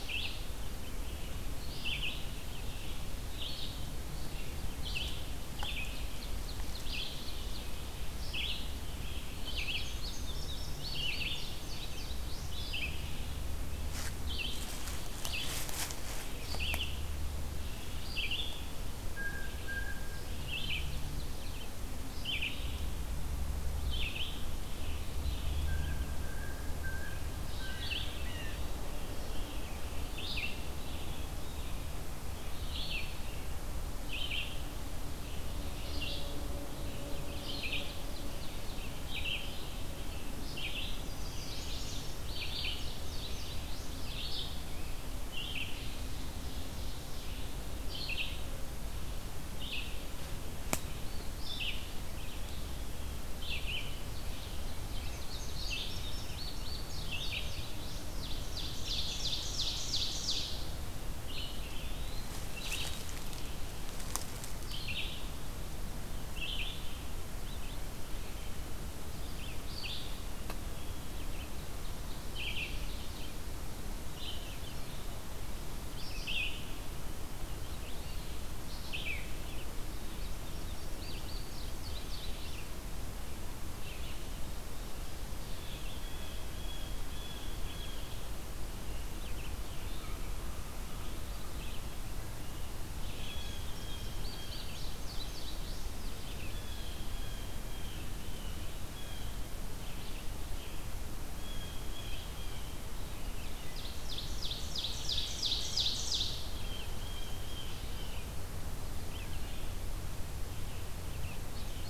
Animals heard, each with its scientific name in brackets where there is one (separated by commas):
Indigo Bunting (Passerina cyanea), Chestnut-sided Warbler (Setophaga pensylvanica), Ovenbird (Seiurus aurocapilla), Eastern Wood-Pewee (Contopus virens), Red-eyed Vireo (Vireo olivaceus), Blue Jay (Cyanocitta cristata)